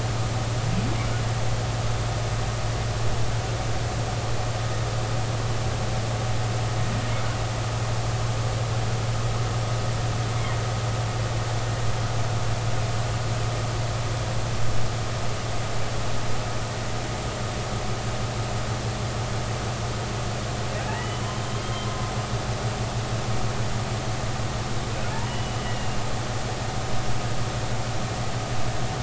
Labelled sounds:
20.9	22.1	humpback whale, 0.99 to 3.3 kHz
25.1	26.0	humpback whale, 0.83 to 3.0 kHz

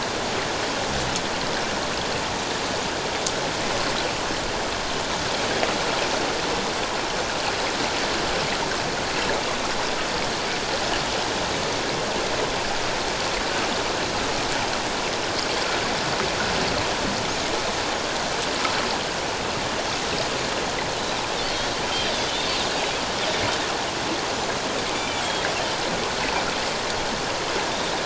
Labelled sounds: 21.4	22.3	Pacific white-sided dolphin, 2.9 to 3.6 kHz
24.9	25.2	Pacific white-sided dolphin, 2.2 to 2.5 kHz

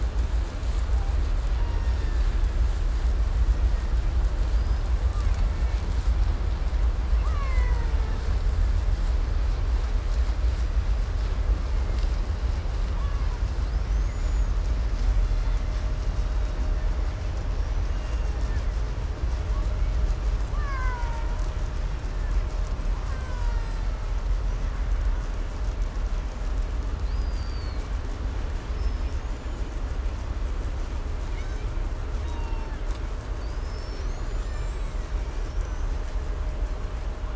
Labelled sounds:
0.7	1.2	killer whale, Bigg's (transient), call T01, 0.54 to 2.1 kHz
1.5	2.5	killer whale, Bigg's (transient), call T02, 0.51 to 5.9 kHz
3.4	4.0	killer whale, Bigg's (transient), 1.5 to 2.2 kHz
4.4	6.0	killer whale, 0.50 to 5.7 kHz
7.0	8.5	killer whale, Bigg's (transient), call T08, 0.26 to 8.0 kHz
11.6	12.2	killer whale, 1.7 to 7.2 kHz
12.7	14.7	killer whale, 0.75 to 7.0 kHz
15.0	15.9	killer whale, Bigg's (transient), call T01, 1.3 to 5.1 kHz
16.0	17.0	killer whale, Bigg's (transient), call T02, 1.5 to 4.3 kHz
17.7	18.7	killer whale, Bigg's (transient), call T02, 1.3 to 8.0 kHz
19.3	20.2	killer whale, Bigg's (transient), call T01, 0.73 to 3.1 kHz
20.3	21.7	killer whale, Bigg's (transient), call T08, 0.69 to 7.8 kHz
21.9	22.5	killer whale, Bigg's (transient), call T02, 0.97 to 5.7 kHz
22.9	25.0	killer whale, Bigg's (transient), 0.67 to 8.0 kHz
26.9	28.0	killer whale, 2.0 to 8.0 kHz
28.6	29.8	killer whale, 4.9 to 7.5 kHz
31.2	31.8	killer whale, Bigg's (transient), call T01, 1.3 to 6.8 kHz
32.2	33.0	killer whale, Bigg's (transient), call T02, 0.63 to 6.0 kHz
33.4	36.3	killer whale, 0.77 to 8.0 kHz

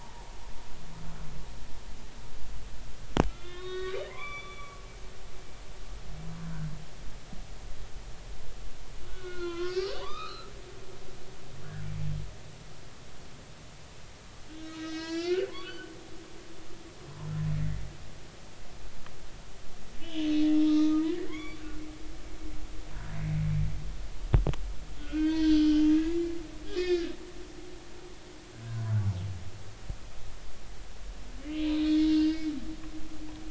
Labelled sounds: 3.3	4.8	humpback whale, 0.96 to 5.8 kHz
9.1	10.5	humpback whale, 0.90 to 4.5 kHz
14.5	15.9	humpback whale, 0.99 to 6.8 kHz
20.0	21.6	humpback whale, 0.99 to 3.8 kHz
25.0	26.4	humpback whale, 0.90 to 4.5 kHz
26.7	27.1	humpback whale, 1.5 to 5.5 kHz
28.7	28.9	humpback whale, 0.96 to 1.1 kHz
31.4	32.5	humpback whale, 2.7 to 5.2 kHz

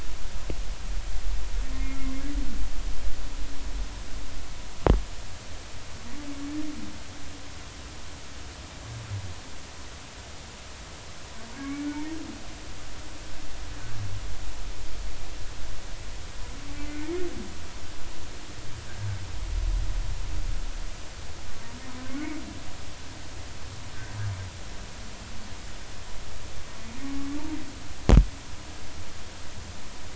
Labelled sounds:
1.7	2.0	humpback whale, 2.0 to 2.2 kHz
11.5	11.9	humpback whale, 2.1 to 2.3 kHz
22.1	22.4	humpback whale, 2.0 to 2.3 kHz

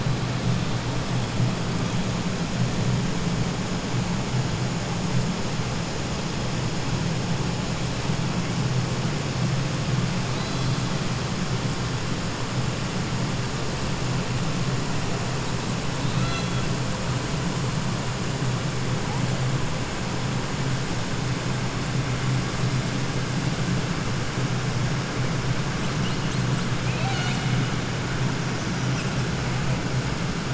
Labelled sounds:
16.0	16.6	killer whale, 0.70 to 6.1 kHz

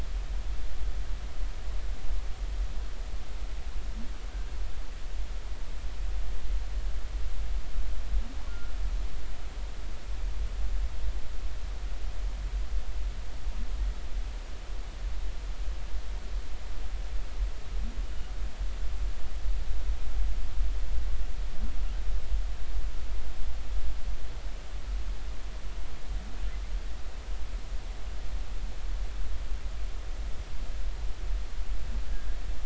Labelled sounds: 8.5	8.7	humpback whale, 1.3 to 1.5 kHz

